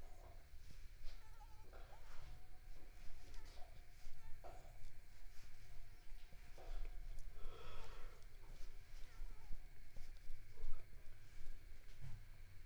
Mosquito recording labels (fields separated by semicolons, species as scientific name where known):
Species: Mansonia uniformis; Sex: female; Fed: unfed; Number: one; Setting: cup